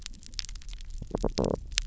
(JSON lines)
{"label": "biophony", "recorder": "SoundTrap 300"}